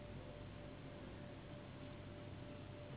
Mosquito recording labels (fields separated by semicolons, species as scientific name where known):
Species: Anopheles gambiae s.s.; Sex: female; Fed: unfed; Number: one; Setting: insect culture